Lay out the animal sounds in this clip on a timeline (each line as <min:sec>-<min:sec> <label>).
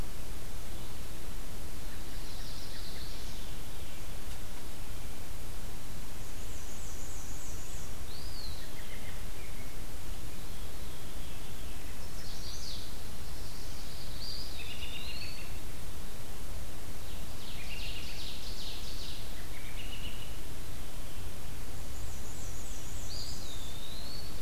0:01.8-0:03.4 Chestnut-sided Warbler (Setophaga pensylvanica)
0:06.3-0:08.0 Black-and-white Warbler (Mniotilta varia)
0:08.0-0:08.6 Eastern Wood-Pewee (Contopus virens)
0:08.5-0:10.0 American Robin (Turdus migratorius)
0:12.0-0:14.5 Chestnut-sided Warbler (Setophaga pensylvanica)
0:14.1-0:15.5 Eastern Wood-Pewee (Contopus virens)
0:14.6-0:15.5 American Robin (Turdus migratorius)
0:16.9-0:19.2 Ovenbird (Seiurus aurocapilla)
0:17.6-0:18.4 American Robin (Turdus migratorius)
0:19.2-0:20.3 American Robin (Turdus migratorius)
0:21.8-0:23.7 Black-and-white Warbler (Mniotilta varia)
0:23.1-0:24.4 Eastern Wood-Pewee (Contopus virens)